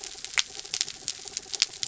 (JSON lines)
{"label": "anthrophony, mechanical", "recorder": "SoundTrap 300"}